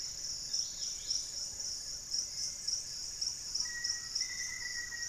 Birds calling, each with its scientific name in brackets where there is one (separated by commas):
Black-faced Antthrush (Formicarius analis), Undulated Tinamou (Crypturellus undulatus), Black-fronted Nunbird (Monasa nigrifrons), Lemon-throated Barbet (Eubucco richardsoni), Dusky-capped Greenlet (Pachysylvia hypoxantha)